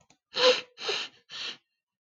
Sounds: Sniff